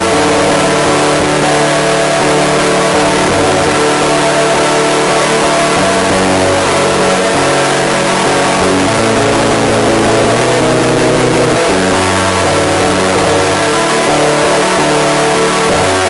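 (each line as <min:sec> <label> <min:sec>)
0:00.0 A distorted guitar is playing. 0:16.1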